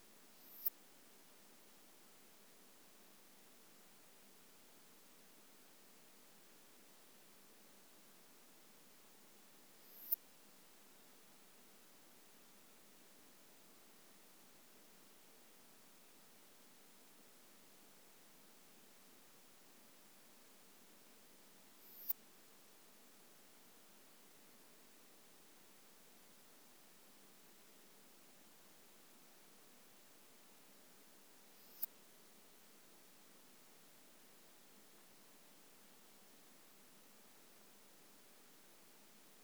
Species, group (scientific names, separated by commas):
Poecilimon pseudornatus, Orthoptera